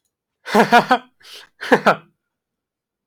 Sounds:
Laughter